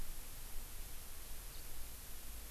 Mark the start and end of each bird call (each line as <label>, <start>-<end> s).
House Finch (Haemorhous mexicanus), 1.5-1.7 s